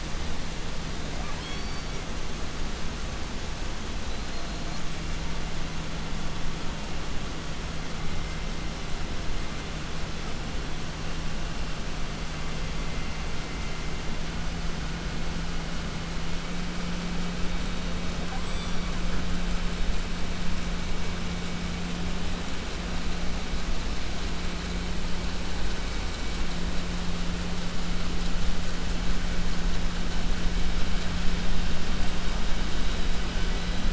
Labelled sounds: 1.1	2.2	killer whale, southern resident, J pod, call S44, 0.28 to 8.0 kHz
3.9	5.2	killer whale, southern resident, 0.30 to 8.0 kHz
18.0	19.4	killer whale, southern resident, J pod, call S44, 0.29 to 8.0 kHz
31.5	32.5	killer whale, 7.1 to 8.0 kHz

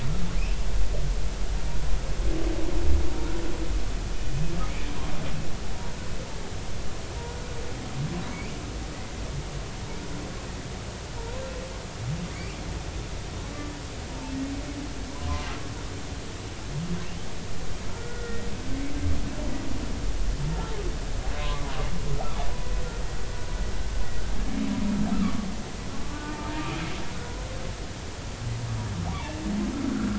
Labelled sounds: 12.3	12.6	humpback whale, 2.0 to 2.5 kHz
17.9	18.5	humpback whale, 1.3 to 2.0 kHz
21.4	21.7	humpback whale, 0.96 to 1.2 kHz
25.1	26.4	humpback whale, 1.1 to 1.5 kHz
27.1	27.7	humpback whale, 0.86 to 1.5 kHz

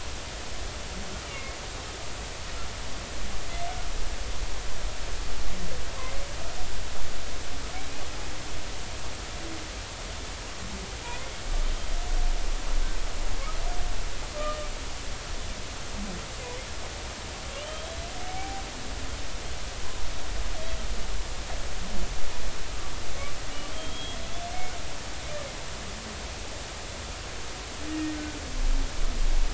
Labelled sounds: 1.3	1.6	humpback whale, 2.1 to 2.3 kHz
17.6	18.0	humpback whale, 2.9 to 3.3 kHz
18.3	18.6	humpback whale, 0.80 to 0.86 kHz
23.7	24.2	humpback whale, 3.1 to 3.4 kHz
27.9	28.2	humpback whale, 1.8 to 1.9 kHz

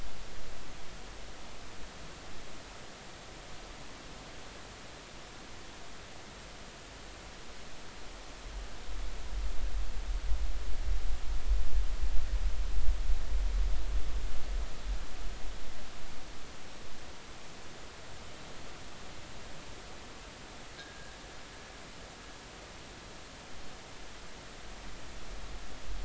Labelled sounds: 20.8	21.1	fishing gear, 1.5 to 1.9 kHz

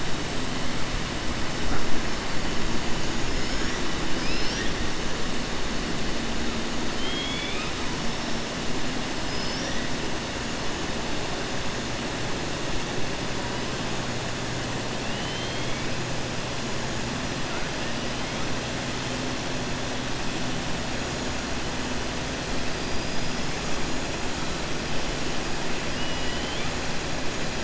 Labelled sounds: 6.9	7.7	killer whale, 2.1 to 3.8 kHz
15.0	15.8	killer whale, 2.0 to 4.2 kHz
25.9	26.7	killer whale, 1.9 to 3.9 kHz

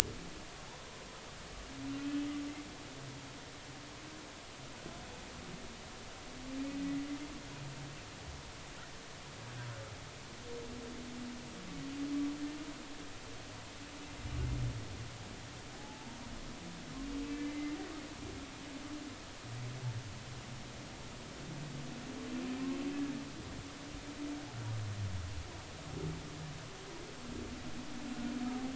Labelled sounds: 15.7	16.1	humpback whale, 0.80 to 0.96 kHz
17.4	17.8	humpback whale, 2.0 to 2.1 kHz

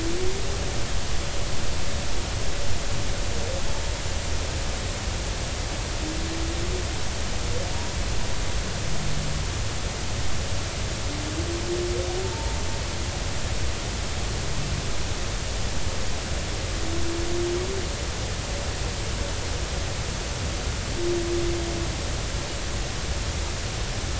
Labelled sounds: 12.3	12.6	humpback whale, 0.83 to 0.96 kHz

